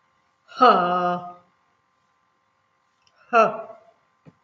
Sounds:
Sigh